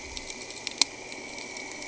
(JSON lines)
{"label": "anthrophony, boat engine", "recorder": "HydroMoth"}